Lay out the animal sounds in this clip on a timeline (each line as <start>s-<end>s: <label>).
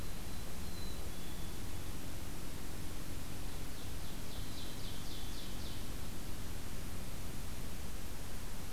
0.0s-1.6s: Black-capped Chickadee (Poecile atricapillus)
3.4s-5.9s: Ovenbird (Seiurus aurocapilla)